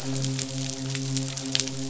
{"label": "biophony, midshipman", "recorder": "SoundTrap 500"}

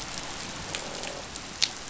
{"label": "biophony, croak", "recorder": "SoundTrap 500"}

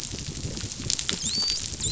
{"label": "biophony, dolphin", "recorder": "SoundTrap 500"}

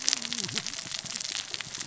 {"label": "biophony, cascading saw", "recorder": "SoundTrap 600 or HydroMoth"}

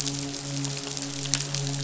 {"label": "biophony, midshipman", "recorder": "SoundTrap 500"}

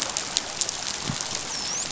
{"label": "biophony, dolphin", "recorder": "SoundTrap 500"}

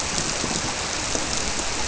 {"label": "biophony", "recorder": "SoundTrap 300"}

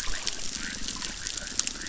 {"label": "biophony, chorus", "recorder": "SoundTrap 600"}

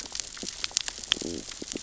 {"label": "biophony, stridulation", "recorder": "SoundTrap 600 or HydroMoth"}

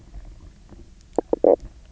{"label": "biophony, knock croak", "recorder": "SoundTrap 300"}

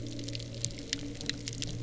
{"label": "anthrophony, boat engine", "recorder": "SoundTrap 300"}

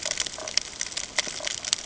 {"label": "ambient", "recorder": "HydroMoth"}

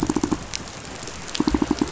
{"label": "biophony, pulse", "recorder": "SoundTrap 500"}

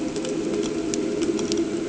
{"label": "anthrophony, boat engine", "recorder": "HydroMoth"}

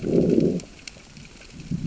{"label": "biophony, growl", "recorder": "SoundTrap 600 or HydroMoth"}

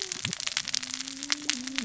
{"label": "biophony, cascading saw", "recorder": "SoundTrap 600 or HydroMoth"}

